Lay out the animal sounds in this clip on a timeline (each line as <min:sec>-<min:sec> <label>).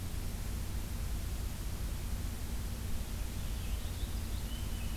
0:03.1-0:05.0 Purple Finch (Haemorhous purpureus)